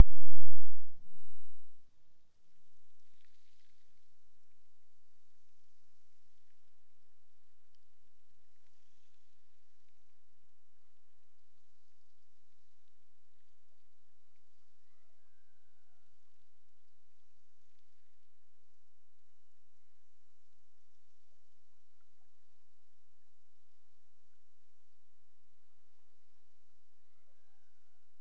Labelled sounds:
14.8	16.2	killer whale, Bigg's (transient), Gulf of Alaska transient, 0.44 to 2.3 kHz
19.3	20.3	killer whale, Bigg's (transient), Gulf of Alaska transient, 1.5 to 3.0 kHz
26.9	28.1	killer whale, Bigg's (transient), Gulf of Alaska transient, 0.23 to 4.1 kHz

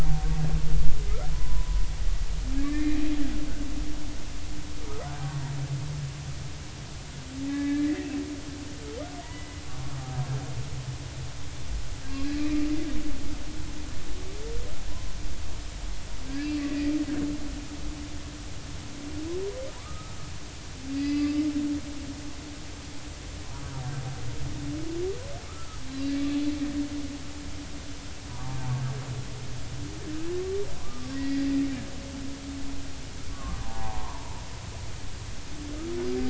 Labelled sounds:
1.3	1.8	humpback whale, 0.96 to 1.1 kHz
2.5	3.0	humpback whale, 1.6 to 2.5 kHz
7.4	8.1	humpback whale, 1.6 to 2.4 kHz
9.2	9.5	humpback whale, 1.9 to 2.0 kHz
12.4	12.6	humpback whale, 1.15 to 1.25 kHz
14.9	15.1	humpback whale, 0.93 to 1.1 kHz
16.6	16.9	humpback whale, 1.9 to 2.1 kHz
19.8	20.2	humpback whale, 1.1 to 1.3 kHz
20.9	21.3	humpback whale, 1.9 to 4.9 kHz
25.5	25.8	humpback whale, 1.2 to 1.4 kHz
28.3	28.6	humpback whale, 0.80 to 1.0 kHz
30.8	31.5	humpback whale, 0.99 to 2.0 kHz
33.3	34.2	humpback whale, 0.80 to 1.3 kHz

